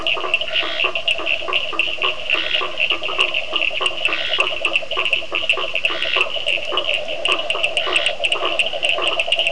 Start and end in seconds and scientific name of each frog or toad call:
0.0	8.4	Scinax perereca
0.0	9.5	Boana faber
0.0	9.5	Sphaenorhynchus surdus